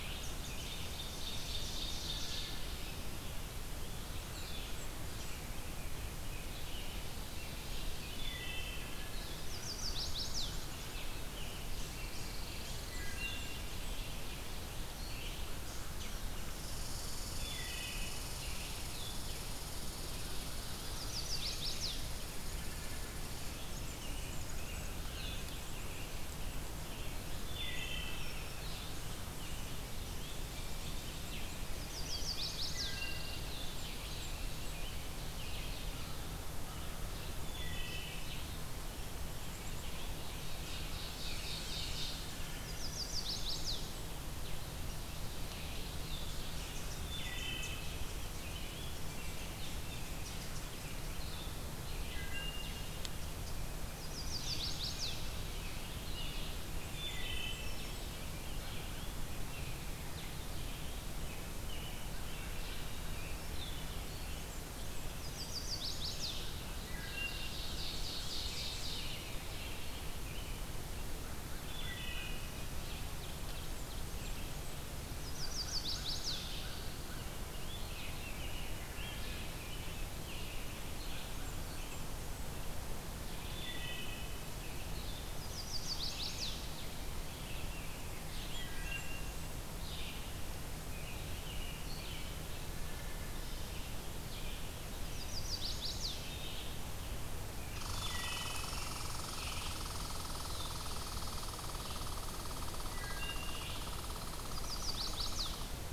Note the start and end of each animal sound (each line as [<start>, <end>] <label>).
[0.00, 0.72] American Robin (Turdus migratorius)
[0.00, 45.02] Red-eyed Vireo (Vireo olivaceus)
[0.76, 2.59] Ovenbird (Seiurus aurocapilla)
[2.17, 2.68] Wood Thrush (Hylocichla mustelina)
[3.98, 5.42] Blackburnian Warbler (Setophaga fusca)
[4.14, 19.45] Blue-headed Vireo (Vireo solitarius)
[5.22, 8.52] American Robin (Turdus migratorius)
[6.59, 8.66] Ovenbird (Seiurus aurocapilla)
[8.05, 9.11] Wood Thrush (Hylocichla mustelina)
[9.38, 10.67] Chestnut-sided Warbler (Setophaga pensylvanica)
[10.79, 12.80] American Robin (Turdus migratorius)
[11.45, 13.39] Pine Warbler (Setophaga pinus)
[12.57, 14.13] Blackburnian Warbler (Setophaga fusca)
[12.82, 14.01] Wood Thrush (Hylocichla mustelina)
[16.61, 26.35] Red Squirrel (Tamiasciurus hudsonicus)
[17.29, 18.24] Wood Thrush (Hylocichla mustelina)
[20.78, 22.11] Chestnut-sided Warbler (Setophaga pensylvanica)
[23.95, 27.57] American Robin (Turdus migratorius)
[27.32, 28.30] Wood Thrush (Hylocichla mustelina)
[27.99, 28.84] Black-throated Green Warbler (Setophaga virens)
[31.66, 33.04] Chestnut-sided Warbler (Setophaga pensylvanica)
[32.00, 32.90] Rose-breasted Grosbeak (Pheucticus ludovicianus)
[32.25, 33.56] Pine Warbler (Setophaga pinus)
[32.63, 33.67] Wood Thrush (Hylocichla mustelina)
[33.55, 34.81] Blackburnian Warbler (Setophaga fusca)
[35.91, 37.18] American Crow (Corvus brachyrhynchos)
[37.46, 38.43] Wood Thrush (Hylocichla mustelina)
[39.91, 42.33] Ovenbird (Seiurus aurocapilla)
[42.02, 42.88] Wood Thrush (Hylocichla mustelina)
[42.50, 43.88] Chestnut-sided Warbler (Setophaga pensylvanica)
[45.34, 104.00] Red-eyed Vireo (Vireo olivaceus)
[46.94, 47.93] Wood Thrush (Hylocichla mustelina)
[48.08, 50.40] American Robin (Turdus migratorius)
[51.13, 64.06] Blue-headed Vireo (Vireo solitarius)
[52.02, 53.04] Wood Thrush (Hylocichla mustelina)
[53.93, 55.34] Chestnut-sided Warbler (Setophaga pensylvanica)
[56.66, 58.26] Blackburnian Warbler (Setophaga fusca)
[56.86, 57.80] Wood Thrush (Hylocichla mustelina)
[61.59, 63.43] American Robin (Turdus migratorius)
[64.22, 65.58] Blackburnian Warbler (Setophaga fusca)
[64.98, 66.45] Chestnut-sided Warbler (Setophaga pensylvanica)
[66.79, 69.17] Ovenbird (Seiurus aurocapilla)
[66.81, 67.77] Wood Thrush (Hylocichla mustelina)
[68.20, 70.68] American Robin (Turdus migratorius)
[71.63, 72.61] Wood Thrush (Hylocichla mustelina)
[72.50, 74.52] Ovenbird (Seiurus aurocapilla)
[73.45, 74.75] Blackburnian Warbler (Setophaga fusca)
[75.14, 76.44] Chestnut-sided Warbler (Setophaga pensylvanica)
[75.37, 76.90] American Crow (Corvus brachyrhynchos)
[77.00, 78.84] Rose-breasted Grosbeak (Pheucticus ludovicianus)
[78.99, 81.48] American Robin (Turdus migratorius)
[81.11, 82.59] Blackburnian Warbler (Setophaga fusca)
[83.28, 84.41] Wood Thrush (Hylocichla mustelina)
[85.26, 86.62] Chestnut-sided Warbler (Setophaga pensylvanica)
[87.09, 88.69] Rose-breasted Grosbeak (Pheucticus ludovicianus)
[88.23, 89.66] Blackburnian Warbler (Setophaga fusca)
[88.39, 89.50] Wood Thrush (Hylocichla mustelina)
[90.78, 92.33] American Robin (Turdus migratorius)
[92.83, 93.46] Wood Thrush (Hylocichla mustelina)
[94.79, 96.23] Chestnut-sided Warbler (Setophaga pensylvanica)
[97.56, 99.90] American Robin (Turdus migratorius)
[97.78, 105.74] Red Squirrel (Tamiasciurus hudsonicus)
[97.89, 98.92] Wood Thrush (Hylocichla mustelina)
[102.86, 103.75] Wood Thrush (Hylocichla mustelina)
[104.30, 105.59] Chestnut-sided Warbler (Setophaga pensylvanica)